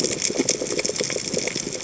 {"label": "biophony, chatter", "recorder": "HydroMoth"}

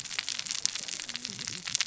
{"label": "biophony, cascading saw", "recorder": "SoundTrap 600 or HydroMoth"}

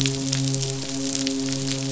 {"label": "biophony, midshipman", "recorder": "SoundTrap 500"}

